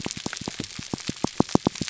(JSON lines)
{"label": "biophony", "recorder": "SoundTrap 300"}